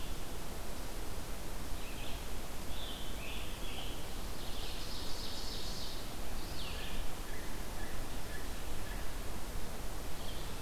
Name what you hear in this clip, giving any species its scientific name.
Vireo olivaceus, Piranga olivacea, Seiurus aurocapilla, Turdus migratorius